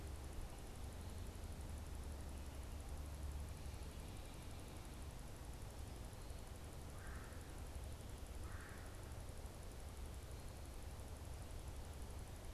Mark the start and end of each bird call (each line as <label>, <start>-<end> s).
Red-bellied Woodpecker (Melanerpes carolinus), 6.8-9.1 s